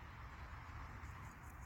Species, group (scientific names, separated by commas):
Pseudochorthippus parallelus, Orthoptera